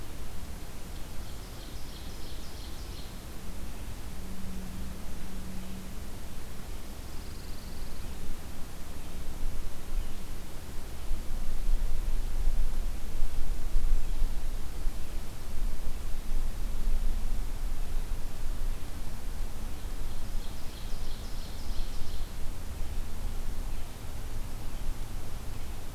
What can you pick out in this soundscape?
Ovenbird, Pine Warbler